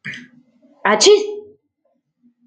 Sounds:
Sneeze